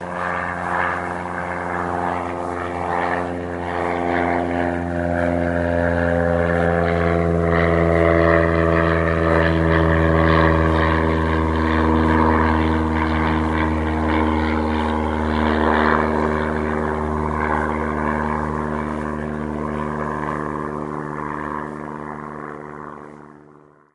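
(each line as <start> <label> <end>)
0.5 An aircraft engine passes by. 16.6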